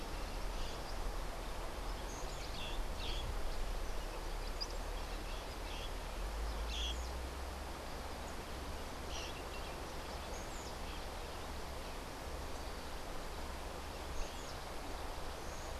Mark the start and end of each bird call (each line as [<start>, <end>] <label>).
[0.00, 6.99] White-crowned Parrot (Pionus senilis)
[2.49, 6.99] Orange-fronted Parakeet (Eupsittula canicularis)